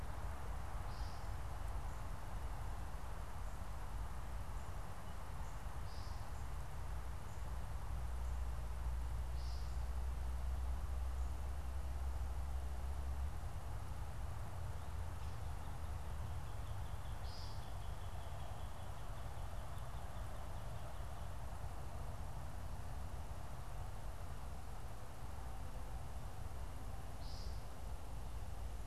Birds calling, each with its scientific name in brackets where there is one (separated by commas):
American Woodcock (Scolopax minor), Northern Cardinal (Cardinalis cardinalis)